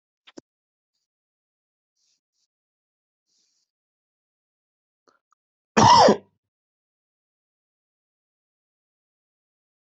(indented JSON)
{
  "expert_labels": [
    {
      "quality": "good",
      "cough_type": "wet",
      "dyspnea": false,
      "wheezing": false,
      "stridor": false,
      "choking": false,
      "congestion": false,
      "nothing": true,
      "diagnosis": "lower respiratory tract infection",
      "severity": "mild"
    }
  ],
  "age": 28,
  "gender": "male",
  "respiratory_condition": false,
  "fever_muscle_pain": false,
  "status": "symptomatic"
}